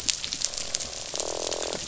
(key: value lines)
label: biophony, croak
recorder: SoundTrap 500